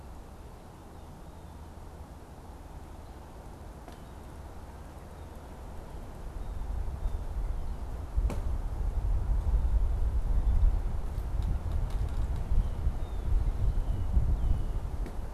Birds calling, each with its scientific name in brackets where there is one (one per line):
Red-winged Blackbird (Agelaius phoeniceus)
Blue Jay (Cyanocitta cristata)